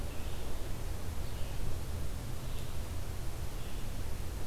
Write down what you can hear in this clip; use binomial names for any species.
Vireo olivaceus